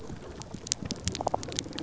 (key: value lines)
label: biophony
recorder: SoundTrap 300